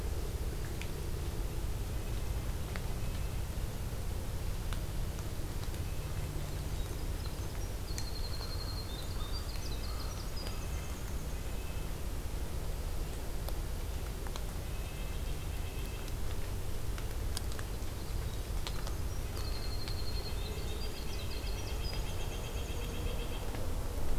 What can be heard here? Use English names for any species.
Red-breasted Nuthatch, Winter Wren, American Crow, White-breasted Nuthatch